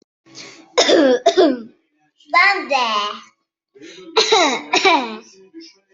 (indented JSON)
{
  "expert_labels": [
    {
      "quality": "ok",
      "cough_type": "dry",
      "dyspnea": false,
      "wheezing": false,
      "stridor": false,
      "choking": false,
      "congestion": false,
      "nothing": true,
      "diagnosis": "healthy cough",
      "severity": "pseudocough/healthy cough"
    }
  ],
  "gender": "female",
  "respiratory_condition": false,
  "fever_muscle_pain": false,
  "status": "healthy"
}